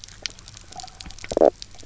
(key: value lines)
label: biophony, knock croak
recorder: SoundTrap 300